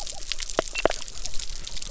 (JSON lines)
{"label": "biophony", "recorder": "SoundTrap 300"}